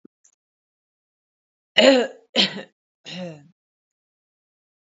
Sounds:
Throat clearing